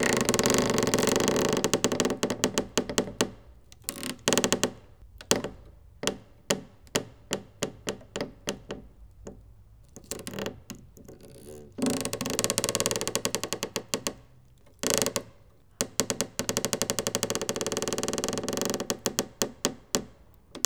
Is something creaking?
yes